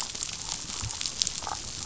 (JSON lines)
{"label": "biophony, damselfish", "recorder": "SoundTrap 500"}